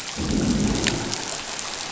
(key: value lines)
label: biophony, growl
recorder: SoundTrap 500